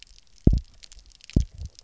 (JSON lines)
{"label": "biophony, double pulse", "recorder": "SoundTrap 300"}